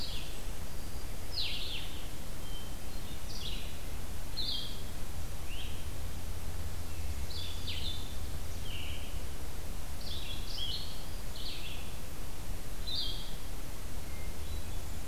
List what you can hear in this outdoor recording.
Blackburnian Warbler, Blue-headed Vireo, Red-eyed Vireo, Hermit Thrush